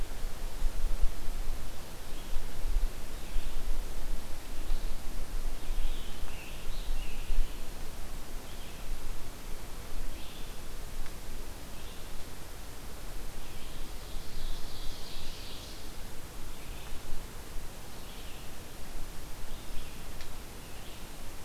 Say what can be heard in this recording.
Red-eyed Vireo, Scarlet Tanager, Ovenbird